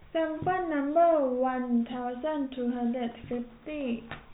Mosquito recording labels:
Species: no mosquito; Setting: cup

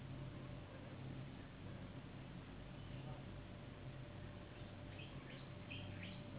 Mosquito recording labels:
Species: Anopheles gambiae s.s.; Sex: female; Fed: unfed; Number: one; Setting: insect culture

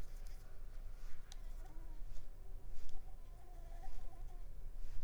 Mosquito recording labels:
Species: Anopheles ziemanni; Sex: female; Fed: unfed; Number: one; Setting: cup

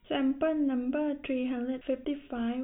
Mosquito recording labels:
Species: no mosquito; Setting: cup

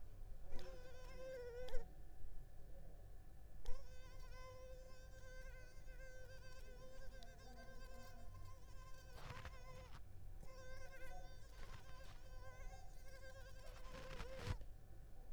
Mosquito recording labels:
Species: Culex pipiens complex; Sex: female; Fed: unfed; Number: one; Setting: cup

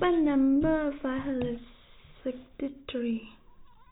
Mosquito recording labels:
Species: no mosquito; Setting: cup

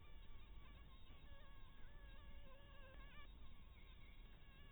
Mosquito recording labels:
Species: Anopheles harrisoni; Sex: female; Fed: blood-fed; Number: one; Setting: cup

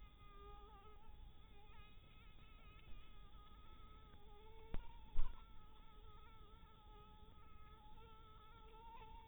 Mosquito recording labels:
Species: mosquito; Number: one; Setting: cup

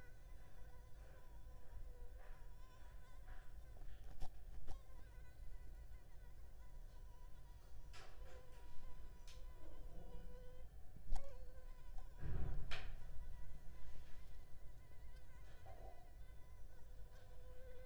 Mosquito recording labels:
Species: Anopheles arabiensis; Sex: female; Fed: unfed; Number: one; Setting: cup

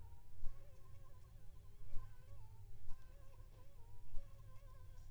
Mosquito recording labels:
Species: Aedes aegypti; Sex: female; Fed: unfed; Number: one; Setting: cup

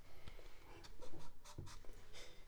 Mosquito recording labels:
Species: Anopheles funestus s.s.; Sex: female; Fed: unfed; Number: one; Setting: cup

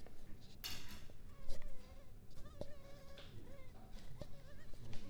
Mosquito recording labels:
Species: mosquito; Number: one; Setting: cup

